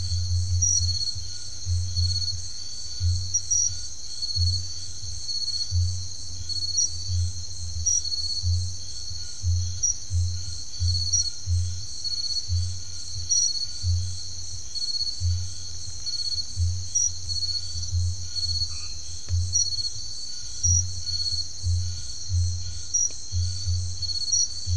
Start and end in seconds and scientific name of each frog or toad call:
0.0	24.7	Scinax alter
18.6	19.2	Boana albomarginata